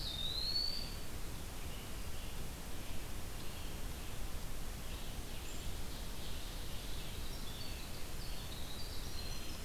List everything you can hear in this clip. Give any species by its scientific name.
Contopus virens, Vireo olivaceus, Seiurus aurocapilla, Troglodytes hiemalis